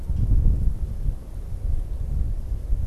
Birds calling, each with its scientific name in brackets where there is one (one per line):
Canada Goose (Branta canadensis)